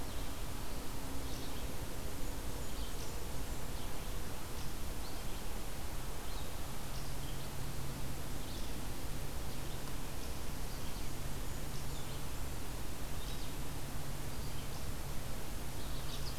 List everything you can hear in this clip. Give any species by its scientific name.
Vireo olivaceus, unknown mammal, Setophaga fusca, Seiurus aurocapilla